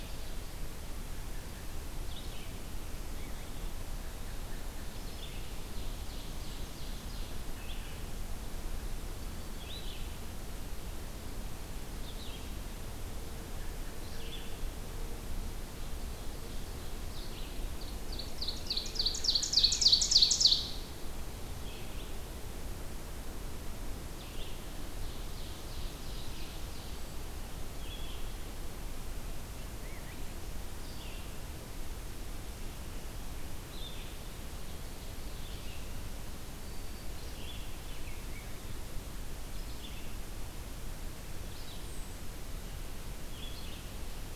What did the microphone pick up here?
Red-eyed Vireo, Ovenbird